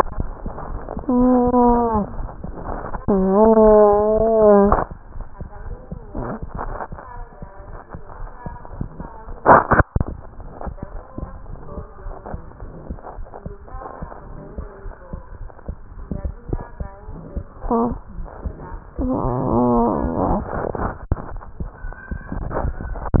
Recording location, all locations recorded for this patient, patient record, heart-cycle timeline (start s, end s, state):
tricuspid valve (TV)
aortic valve (AV)+pulmonary valve (PV)+tricuspid valve (TV)+mitral valve (MV)
#Age: Child
#Sex: Male
#Height: 87.0 cm
#Weight: 12.5 kg
#Pregnancy status: False
#Murmur: Unknown
#Murmur locations: nan
#Most audible location: nan
#Systolic murmur timing: nan
#Systolic murmur shape: nan
#Systolic murmur grading: nan
#Systolic murmur pitch: nan
#Systolic murmur quality: nan
#Diastolic murmur timing: nan
#Diastolic murmur shape: nan
#Diastolic murmur grading: nan
#Diastolic murmur pitch: nan
#Diastolic murmur quality: nan
#Outcome: Abnormal
#Campaign: 2015 screening campaign
0.00	10.48	unannotated
10.48	10.62	diastole
10.62	10.76	S1
10.76	10.90	systole
10.90	11.00	S2
11.00	11.21	diastole
11.21	11.34	S1
11.34	11.49	systole
11.49	11.57	S2
11.57	11.76	diastole
11.76	11.88	S1
11.88	12.04	systole
12.04	12.14	S2
12.14	12.32	diastole
12.32	12.42	S1
12.42	12.56	systole
12.56	12.68	S2
12.68	12.88	diastole
12.88	13.00	S1
13.00	13.16	systole
13.16	13.27	S2
13.27	13.44	diastole
13.44	13.56	S1
13.56	13.68	systole
13.68	13.80	S2
13.80	14.00	diastole
14.00	14.10	S1
14.10	14.22	systole
14.22	14.34	S2
14.34	14.56	diastole
14.56	14.68	S1
14.68	14.80	systole
14.80	14.92	S2
14.92	15.12	diastole
15.12	15.22	S1
15.22	15.36	systole
15.36	15.50	S2
15.50	15.64	diastole
15.64	15.76	S1
15.76	15.88	systole
15.88	16.05	S2
16.05	23.20	unannotated